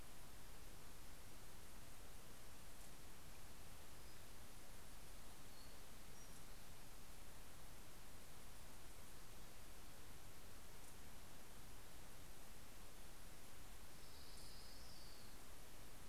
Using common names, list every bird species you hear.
Orange-crowned Warbler